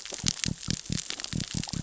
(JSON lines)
{"label": "biophony", "recorder": "SoundTrap 600 or HydroMoth"}